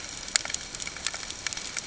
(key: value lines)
label: ambient
recorder: HydroMoth